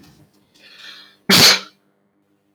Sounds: Sneeze